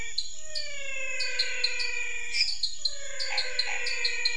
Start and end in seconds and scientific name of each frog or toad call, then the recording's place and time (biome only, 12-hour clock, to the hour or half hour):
0.0	4.3	Dendropsophus nanus
0.0	4.3	Physalaemus albonotatus
2.2	2.5	Dendropsophus minutus
3.2	3.9	Boana raniceps
Cerrado, ~8pm